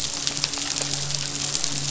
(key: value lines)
label: biophony, midshipman
recorder: SoundTrap 500